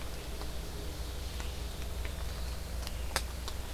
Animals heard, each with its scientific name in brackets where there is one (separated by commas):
Ovenbird (Seiurus aurocapilla)